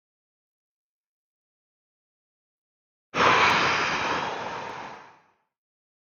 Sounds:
Sigh